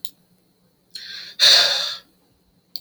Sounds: Sigh